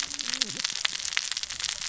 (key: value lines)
label: biophony, cascading saw
recorder: SoundTrap 600 or HydroMoth